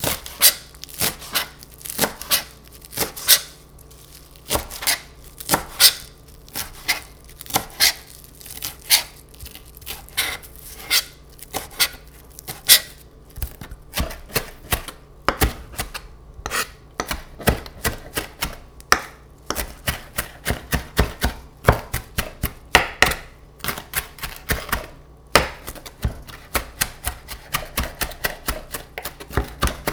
Is this a bird?
no